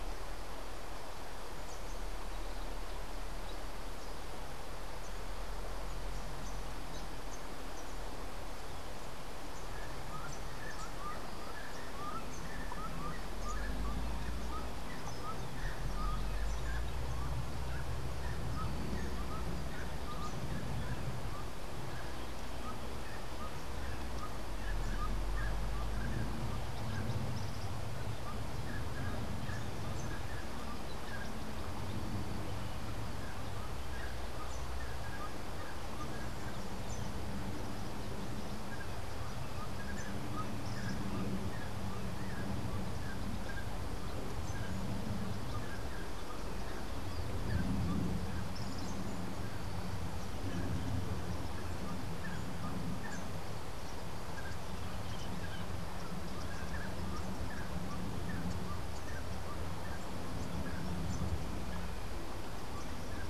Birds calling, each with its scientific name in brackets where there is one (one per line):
Gray-cowled Wood-Rail (Aramides cajaneus)